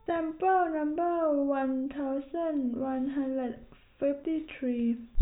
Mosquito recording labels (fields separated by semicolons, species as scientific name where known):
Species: no mosquito; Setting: cup